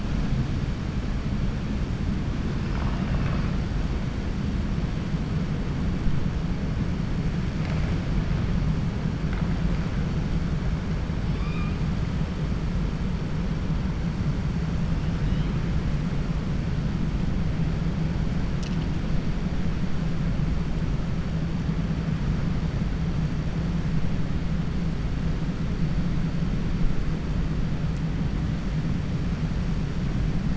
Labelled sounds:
11.2	11.8	killer whale, 1.1 to 5.3 kHz

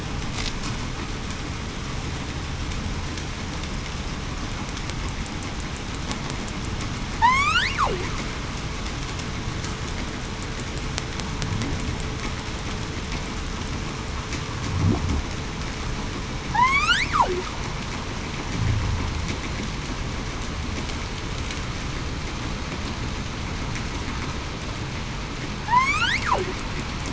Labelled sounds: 7.2	7.7	killer whale, southern resident, 0.82 to 5.5 kHz
16.5	17.0	killer whale, southern resident, 1.6 to 3.6 kHz
25.6	26.2	killer whale, southern resident, 1.7 to 4.0 kHz

